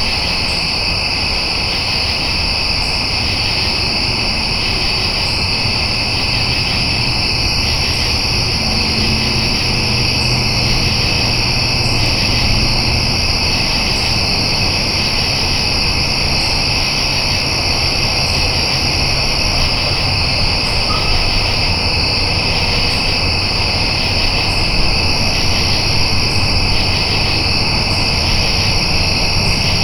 Are people talking?
no